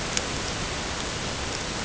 {"label": "ambient", "recorder": "HydroMoth"}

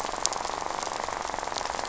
{"label": "biophony, rattle", "recorder": "SoundTrap 500"}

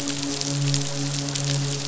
{"label": "biophony, midshipman", "recorder": "SoundTrap 500"}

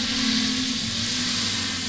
{"label": "anthrophony, boat engine", "recorder": "SoundTrap 500"}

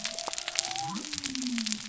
{"label": "biophony", "recorder": "SoundTrap 300"}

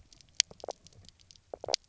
{"label": "biophony, knock croak", "recorder": "SoundTrap 300"}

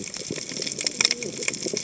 {"label": "biophony, cascading saw", "recorder": "HydroMoth"}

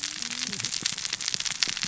{"label": "biophony, cascading saw", "recorder": "SoundTrap 600 or HydroMoth"}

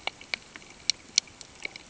{"label": "ambient", "recorder": "HydroMoth"}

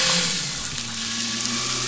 {"label": "anthrophony, boat engine", "recorder": "SoundTrap 500"}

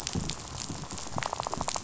{"label": "biophony, rattle", "recorder": "SoundTrap 500"}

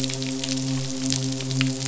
{"label": "biophony, midshipman", "recorder": "SoundTrap 500"}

